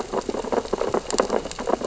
{"label": "biophony, sea urchins (Echinidae)", "recorder": "SoundTrap 600 or HydroMoth"}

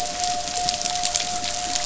{"label": "anthrophony, boat engine", "recorder": "SoundTrap 500"}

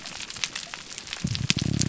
{"label": "biophony, grouper groan", "recorder": "SoundTrap 300"}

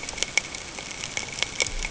{"label": "ambient", "recorder": "HydroMoth"}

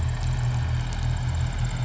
{"label": "anthrophony, boat engine", "recorder": "SoundTrap 500"}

